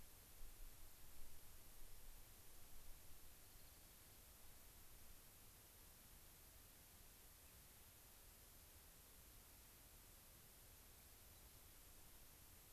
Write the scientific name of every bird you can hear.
Junco hyemalis, Leucosticte tephrocotis, unidentified bird